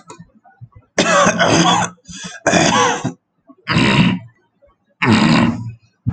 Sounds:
Throat clearing